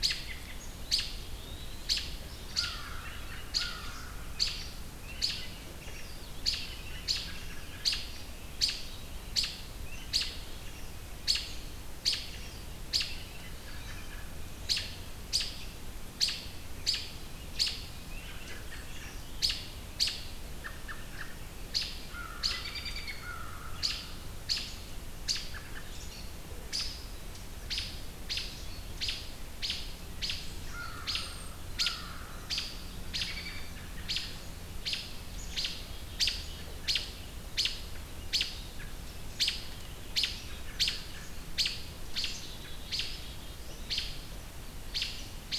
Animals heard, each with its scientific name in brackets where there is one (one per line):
American Crow (Corvus brachyrhynchos)
Eastern Wood-Pewee (Contopus virens)
American Robin (Turdus migratorius)